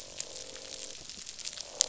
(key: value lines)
label: biophony, croak
recorder: SoundTrap 500